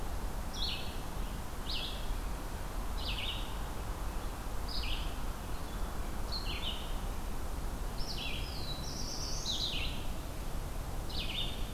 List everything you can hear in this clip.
Red-eyed Vireo, Black-throated Blue Warbler